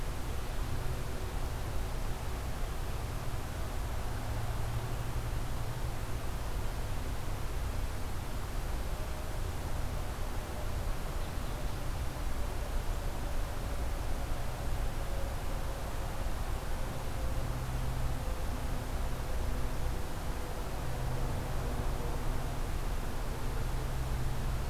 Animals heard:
forest ambience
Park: Marsh-Billings-Rockefeller National Historical Park